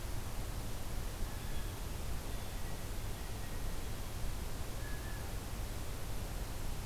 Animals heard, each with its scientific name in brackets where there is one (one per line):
Blue Jay (Cyanocitta cristata)